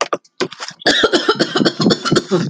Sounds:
Cough